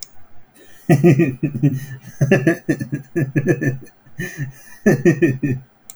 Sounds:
Laughter